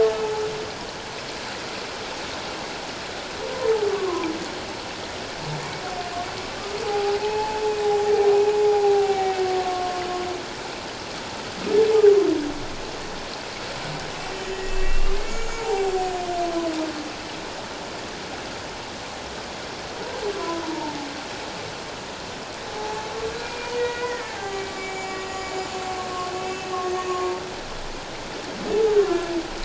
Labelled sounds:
3.9	4.3	humpback whale, 0.88 to 1.2 kHz
6.8	7.6	humpback whale, 0.78 to 7.4 kHz
8.3	9.4	humpback whale, 0.78 to 2.6 kHz
9.6	10.0	humpback whale, 1.0 to 1.1 kHz
14.4	16.1	humpback whale, 0.78 to 7.1 kHz
20.6	21.0	humpback whale, 0.84 to 1.0 kHz
22.8	23.1	humpback whale, 0.81 to 0.91 kHz
23.4	26.7	humpback whale, 0.78 to 7.4 kHz

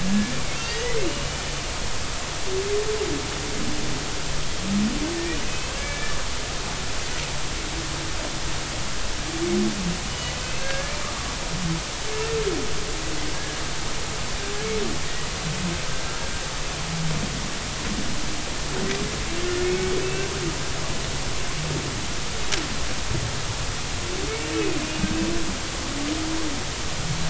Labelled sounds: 0.0	1.4	humpback whale, 1.7 to 5.0 kHz
5.4	6.2	humpback whale, 1.6 to 2.8 kHz
10.1	11.0	humpback whale, 1.6 to 3.0 kHz
19.6	20.3	humpback whale, 2.1 to 2.8 kHz
24.5	24.8	humpback whale, 2.4 to 2.6 kHz

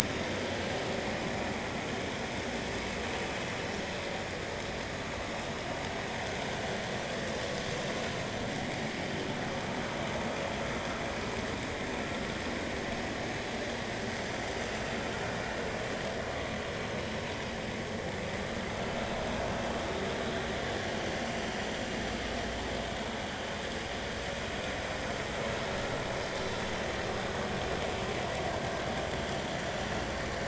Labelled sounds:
0.1	0.4	vessel noise, 3.6 to 3.7 kHz

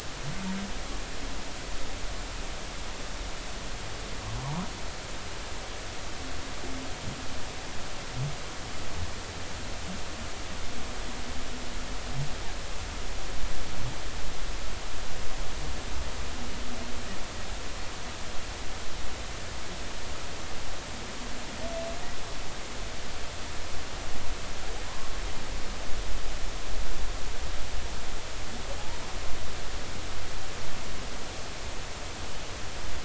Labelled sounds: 4.4	4.7	humpback whale, 0.80 to 1.4 kHz

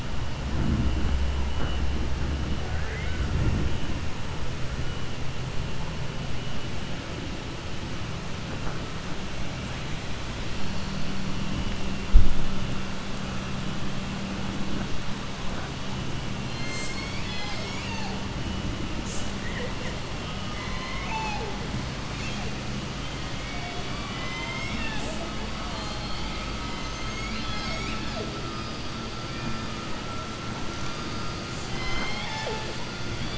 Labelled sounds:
20.4	21.6	killer whale, southern resident, 0.45 to 7.0 kHz
25.6	26.5	killer whale, southern resident, 2.2 to 4.7 kHz

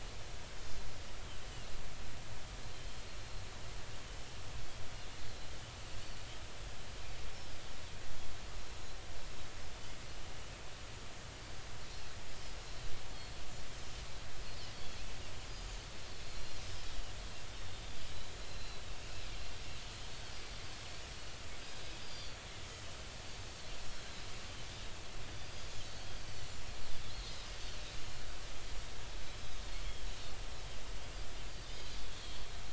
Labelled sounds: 0.6	0.9	Pacific white-sided dolphin, 4.0 to 4.4 kHz
3.7	4.0	Pacific white-sided dolphin, 3.1 to 3.2 kHz
7.0	7.2	Pacific white-sided dolphin, 4.5 to 4.9 kHz
15.7	16.0	Pacific white-sided dolphin, 4.4 to 4.5 kHz
18.4	18.9	Pacific white-sided dolphin, 3.9 to 4.2 kHz
22.0	22.4	Pacific white-sided dolphin, 4.4 to 5.1 kHz
25.4	26.6	Pacific white-sided dolphin, 4.2 to 6.0 kHz
27.5	27.7	Pacific white-sided dolphin, 4.6 to 4.8 kHz
29.2	29.6	Pacific white-sided dolphin, 3.6 to 5.3 kHz

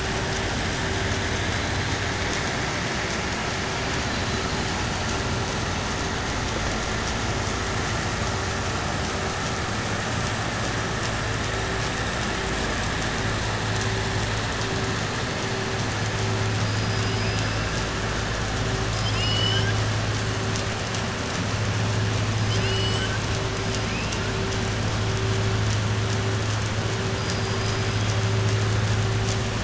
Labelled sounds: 18.9	19.8	killer whale, southern resident, 1.6 to 5.8 kHz
22.4	23.2	killer whale, southern resident, 1.5 to 5.9 kHz

